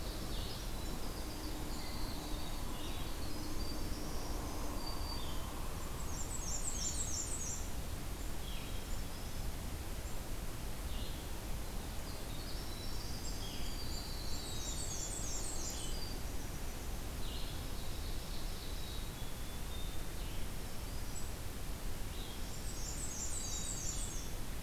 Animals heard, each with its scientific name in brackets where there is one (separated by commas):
Black-capped Chickadee (Poecile atricapillus), Blue-headed Vireo (Vireo solitarius), Black-and-white Warbler (Mniotilta varia), Black-throated Green Warbler (Setophaga virens), Winter Wren (Troglodytes hiemalis), Ovenbird (Seiurus aurocapilla), Blue Jay (Cyanocitta cristata)